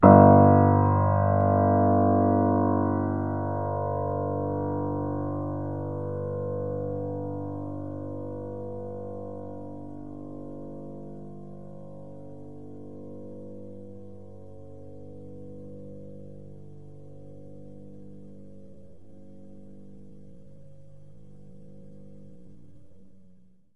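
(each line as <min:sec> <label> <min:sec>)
0:00.0 A piano note is sustained, producing a singular, resonant tone with a warm, rich timbre that gradually fades. 0:23.7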